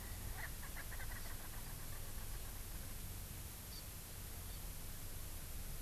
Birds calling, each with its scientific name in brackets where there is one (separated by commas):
Erckel's Francolin (Pternistis erckelii), Hawaii Amakihi (Chlorodrepanis virens)